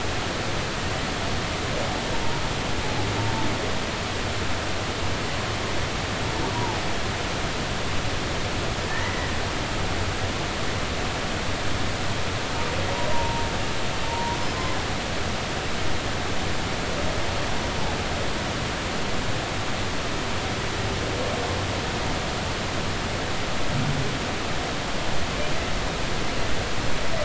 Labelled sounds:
6.5	6.8	humpback whale, 0.80 to 1.0 kHz
8.9	9.3	humpback whale, 1.7 to 2.1 kHz
13.1	13.5	humpback whale, 0.86 to 1.0 kHz
14.1	14.4	humpback whale, 0.90 to 1.1 kHz

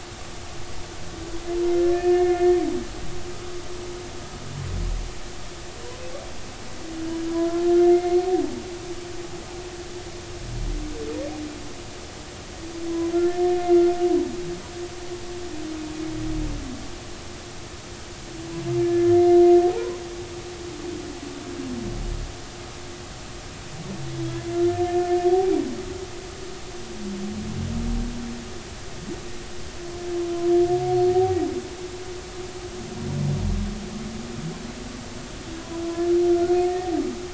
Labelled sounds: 1.8	2.5	humpback whale, 1.6 to 2.2 kHz
7.3	8.2	humpback whale, 0.93 to 2.2 kHz
13.1	13.9	humpback whale, 1.3 to 2.1 kHz
18.8	19.2	humpback whale, 1.7 to 1.8 kHz
19.7	20.0	humpback whale, 0.80 to 1.1 kHz
24.6	25.2	humpback whale, 1.7 to 1.8 kHz
36.4	36.9	humpback whale, 1.8 to 4.4 kHz

